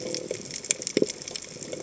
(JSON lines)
{"label": "biophony", "recorder": "HydroMoth"}